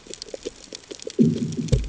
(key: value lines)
label: anthrophony, bomb
recorder: HydroMoth